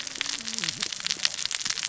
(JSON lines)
{"label": "biophony, cascading saw", "recorder": "SoundTrap 600 or HydroMoth"}